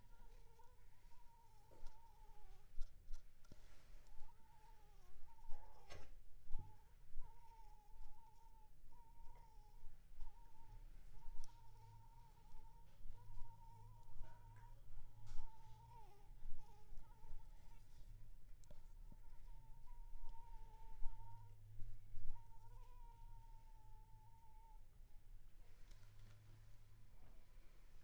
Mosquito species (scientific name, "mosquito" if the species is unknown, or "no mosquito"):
Anopheles funestus s.s.